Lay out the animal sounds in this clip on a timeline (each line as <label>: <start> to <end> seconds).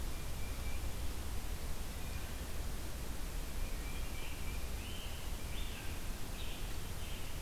Tufted Titmouse (Baeolophus bicolor): 0.1 to 1.0 seconds
Wood Thrush (Hylocichla mustelina): 2.0 to 2.6 seconds
Tufted Titmouse (Baeolophus bicolor): 3.3 to 4.9 seconds
Scarlet Tanager (Piranga olivacea): 3.9 to 7.4 seconds